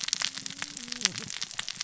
{"label": "biophony, cascading saw", "recorder": "SoundTrap 600 or HydroMoth"}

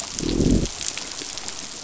{"label": "biophony, growl", "recorder": "SoundTrap 500"}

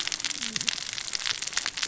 {"label": "biophony, cascading saw", "recorder": "SoundTrap 600 or HydroMoth"}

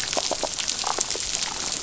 {"label": "biophony", "recorder": "SoundTrap 500"}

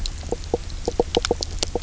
{"label": "biophony, knock croak", "recorder": "SoundTrap 300"}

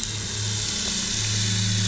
{"label": "anthrophony, boat engine", "recorder": "SoundTrap 500"}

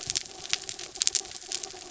{"label": "anthrophony, mechanical", "recorder": "SoundTrap 300"}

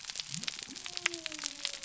{"label": "biophony", "recorder": "SoundTrap 300"}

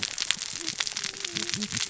{"label": "biophony, cascading saw", "recorder": "SoundTrap 600 or HydroMoth"}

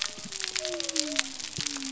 {"label": "biophony", "recorder": "SoundTrap 300"}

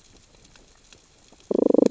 {"label": "biophony, damselfish", "recorder": "SoundTrap 600 or HydroMoth"}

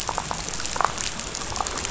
{"label": "biophony, rattle", "recorder": "SoundTrap 500"}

